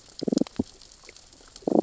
{"label": "biophony, damselfish", "recorder": "SoundTrap 600 or HydroMoth"}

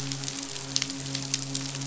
{"label": "biophony, midshipman", "recorder": "SoundTrap 500"}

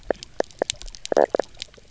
{"label": "biophony, knock croak", "recorder": "SoundTrap 300"}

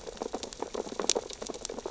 {"label": "biophony, sea urchins (Echinidae)", "recorder": "SoundTrap 600 or HydroMoth"}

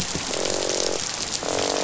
{"label": "biophony, croak", "recorder": "SoundTrap 500"}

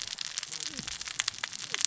{"label": "biophony, cascading saw", "recorder": "SoundTrap 600 or HydroMoth"}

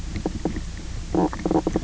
{"label": "biophony, knock croak", "recorder": "SoundTrap 300"}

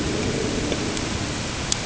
{"label": "ambient", "recorder": "HydroMoth"}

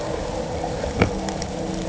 {"label": "anthrophony, boat engine", "recorder": "HydroMoth"}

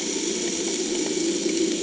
{"label": "anthrophony, boat engine", "recorder": "HydroMoth"}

